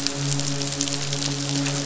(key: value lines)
label: biophony, midshipman
recorder: SoundTrap 500